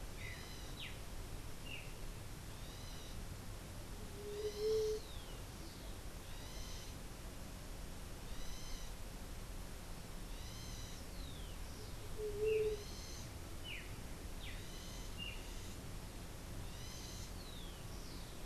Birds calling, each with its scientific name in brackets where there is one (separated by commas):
White-tipped Dove (Leptotila verreauxi), unidentified bird, Streaked Saltator (Saltator striatipectus)